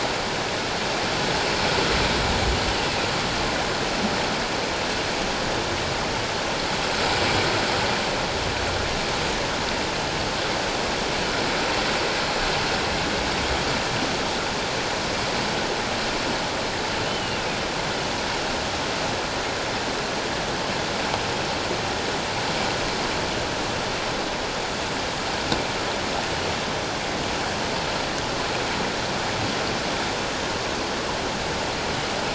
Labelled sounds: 17.1	17.4	humpback whale, 2.7 to 3.1 kHz

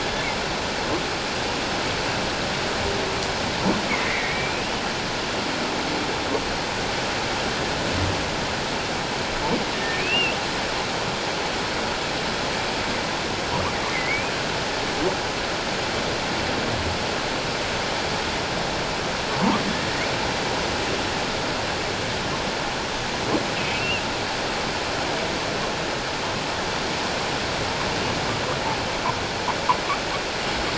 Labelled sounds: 3.9	4.7	humpback whale, 1.8 to 2.6 kHz
9.9	10.3	humpback whale, 2.2 to 2.9 kHz
13.9	14.3	humpback whale, 1.9 to 2.6 kHz
23.6	24.0	humpback whale, 2.4 to 2.9 kHz

